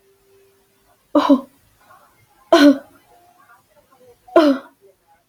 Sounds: Cough